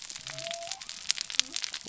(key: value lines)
label: biophony
recorder: SoundTrap 300